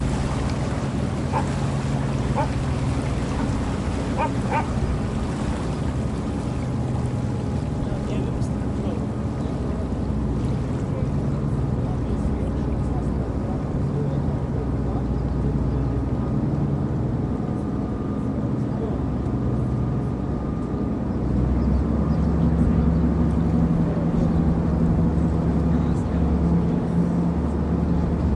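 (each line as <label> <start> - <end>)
Water splashing in the background. 0.0 - 10.2
A boat engine is running. 0.0 - 28.4
A dog barks. 1.3 - 1.5
A dog barks. 2.3 - 2.5
A dog barks. 4.2 - 4.6
People talking quietly in the background. 7.5 - 28.4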